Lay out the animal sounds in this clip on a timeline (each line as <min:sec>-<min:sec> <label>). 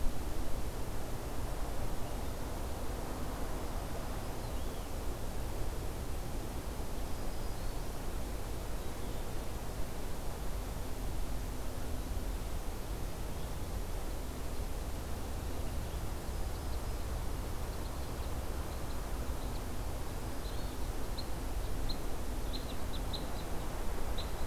0:03.6-0:04.6 Black-throated Green Warbler (Setophaga virens)
0:06.6-0:07.9 Black-throated Green Warbler (Setophaga virens)
0:16.0-0:24.5 Downy Woodpecker (Dryobates pubescens)